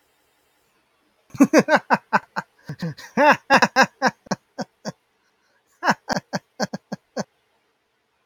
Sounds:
Laughter